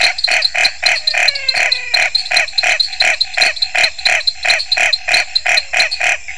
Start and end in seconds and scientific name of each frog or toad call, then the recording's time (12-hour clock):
0.0	6.3	Dendropsophus nanus
0.0	6.3	Scinax fuscovarius
0.9	2.2	Physalaemus albonotatus
7:30pm